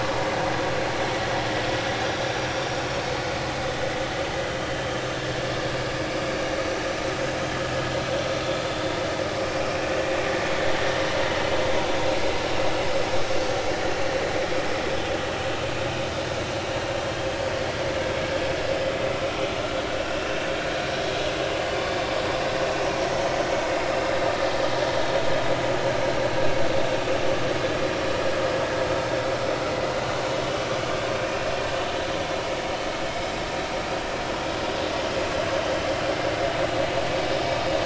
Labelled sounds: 7.4	7.7	vessel noise, 3.0 to 3.2 kHz
16.9	17.2	vessel noise, 3.1 to 3.4 kHz
20.2	20.5	vessel noise, 2.6 to 2.8 kHz
31.1	31.4	vessel noise, 5.8 to 6.0 kHz

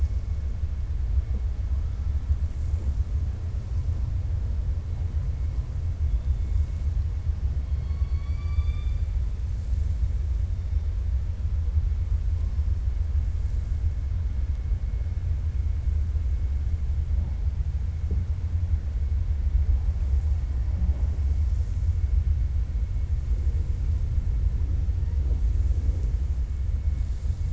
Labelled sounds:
7.6	9.0	killer whale, 1.1 to 4.8 kHz

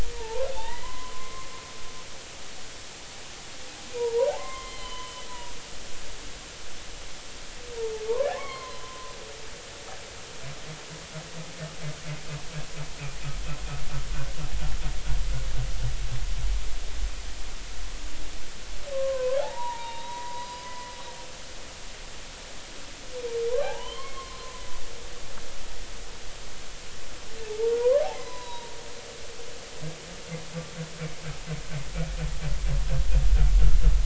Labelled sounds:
0.1	1.5	humpback whale, 0.80 to 2.1 kHz
4.0	5.5	humpback whale, 0.86 to 4.2 kHz
8.3	9.1	humpback whale, 0.96 to 4.3 kHz
18.9	20.9	humpback whale, 0.80 to 4.9 kHz
23.6	24.6	humpback whale, 0.80 to 3.3 kHz
27.5	28.7	humpback whale, 0.80 to 4.0 kHz

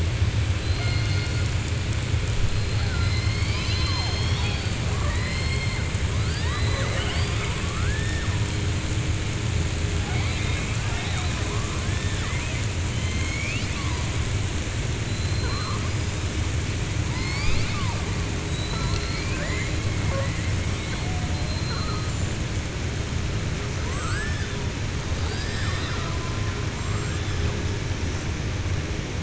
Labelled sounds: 3.5	5.8	killer whale, southern resident, 0.59 to 6.4 kHz
10.0	10.7	killer whale, southern resident, 0.73 to 4.5 kHz
11.9	12.6	killer whale, southern resident, 1.0 to 4.5 kHz
12.9	14.0	killer whale, southern resident, 1.0 to 7.3 kHz
15.1	15.8	killer whale, southern resident, 4.0 to 4.9 kHz
21.4	22.0	killer whale, southern resident, 4.1 to 4.4 kHz
23.8	24.5	killer whale, southern resident, 0.48 to 7.7 kHz

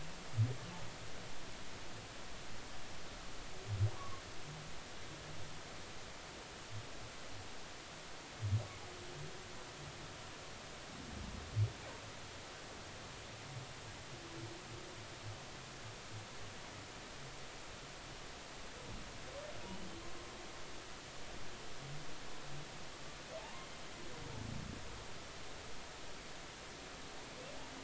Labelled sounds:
4.0	4.2	humpback whale, 0.96 to 1.2 kHz
23.4	23.7	humpback whale, 0.80 to 1.1 kHz

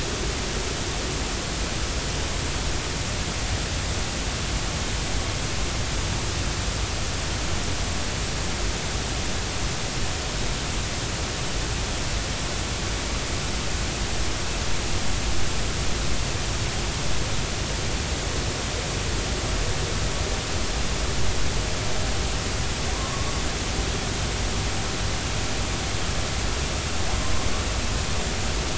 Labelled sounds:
22.9	23.3	humpback whale, 0.93 to 1.2 kHz

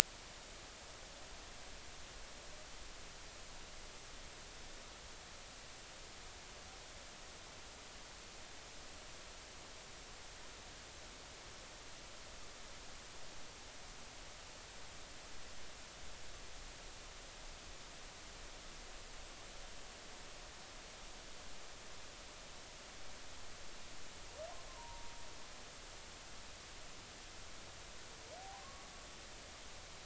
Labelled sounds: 24.7	25.1	humpback whale, 0.90 to 1.1 kHz
28.4	28.6	humpback whale, 0.80 to 0.86 kHz

